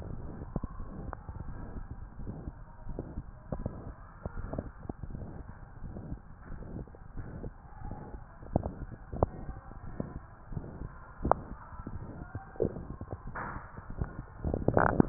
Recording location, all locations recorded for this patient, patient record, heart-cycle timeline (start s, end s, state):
mitral valve (MV)
aortic valve (AV)+pulmonary valve (PV)+tricuspid valve (TV)+mitral valve (MV)
#Age: Adolescent
#Sex: Male
#Height: 151.0 cm
#Weight: 53.6 kg
#Pregnancy status: False
#Murmur: Present
#Murmur locations: aortic valve (AV)+mitral valve (MV)+pulmonary valve (PV)+tricuspid valve (TV)
#Most audible location: pulmonary valve (PV)
#Systolic murmur timing: Holosystolic
#Systolic murmur shape: Plateau
#Systolic murmur grading: III/VI or higher
#Systolic murmur pitch: Medium
#Systolic murmur quality: Blowing
#Diastolic murmur timing: nan
#Diastolic murmur shape: nan
#Diastolic murmur grading: nan
#Diastolic murmur pitch: nan
#Diastolic murmur quality: nan
#Outcome: Abnormal
#Campaign: 2015 screening campaign
0.00	4.72	unannotated
4.72	5.11	diastole
5.11	5.28	S1
5.28	5.36	systole
5.36	5.46	S2
5.46	5.84	diastole
5.84	5.96	S1
5.96	6.06	systole
6.06	6.18	S2
6.18	6.46	diastole
6.46	6.68	S1
6.68	6.74	systole
6.74	6.86	S2
6.86	7.12	diastole
7.12	7.32	S1
7.32	7.40	systole
7.40	7.52	S2
7.52	7.82	diastole
7.82	7.96	S1
7.96	8.12	systole
8.12	8.22	S2
8.22	8.54	diastole
8.54	8.72	S1
8.72	8.80	systole
8.80	8.88	S2
8.88	9.12	diastole
9.12	9.32	S1
9.32	9.44	systole
9.44	9.56	S2
9.56	9.80	diastole
9.80	10.06	S1
10.06	10.14	systole
10.14	10.24	S2
10.24	10.54	diastole
10.54	10.68	S1
10.68	10.80	systole
10.80	10.92	S2
10.92	11.22	diastole
11.22	11.40	S1
11.40	11.48	systole
11.48	11.58	S2
11.58	11.94	diastole
11.94	12.08	S1
12.08	12.18	systole
12.18	12.28	S2
12.28	12.62	diastole
12.62	12.76	S1
12.76	12.88	systole
12.88	12.96	S2
12.96	13.23	diastole
13.23	13.36	S1
13.36	13.44	systole
13.44	13.54	S2
13.54	13.87	diastole
13.87	15.09	unannotated